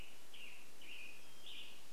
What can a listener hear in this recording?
Hermit Thrush song, Western Tanager song